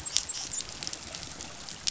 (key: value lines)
label: biophony, dolphin
recorder: SoundTrap 500